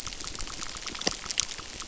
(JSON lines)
{"label": "biophony, crackle", "recorder": "SoundTrap 600"}